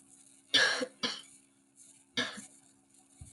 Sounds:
Cough